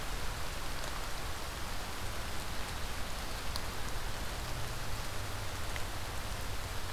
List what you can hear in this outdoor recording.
forest ambience